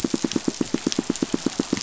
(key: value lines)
label: biophony, pulse
recorder: SoundTrap 500